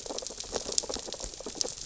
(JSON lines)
{"label": "biophony, sea urchins (Echinidae)", "recorder": "SoundTrap 600 or HydroMoth"}